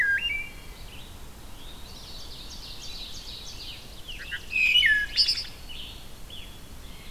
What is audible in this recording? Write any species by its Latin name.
Hylocichla mustelina, Vireo olivaceus, Seiurus aurocapilla, Catharus fuscescens, Piranga olivacea